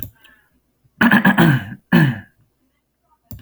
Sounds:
Throat clearing